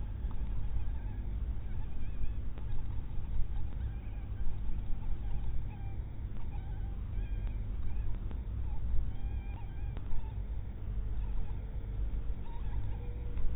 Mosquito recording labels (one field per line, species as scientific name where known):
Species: mosquito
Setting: cup